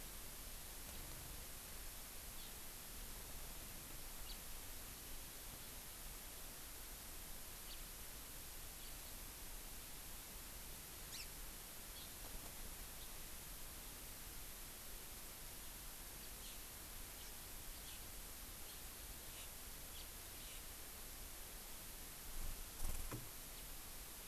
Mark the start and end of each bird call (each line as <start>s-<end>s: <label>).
2.4s-2.6s: Hawaii Amakihi (Chlorodrepanis virens)
4.3s-4.4s: House Finch (Haemorhous mexicanus)
7.7s-7.8s: House Finch (Haemorhous mexicanus)
11.1s-11.3s: Hawaii Amakihi (Chlorodrepanis virens)
20.0s-20.1s: House Finch (Haemorhous mexicanus)